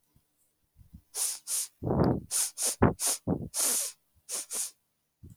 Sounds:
Sniff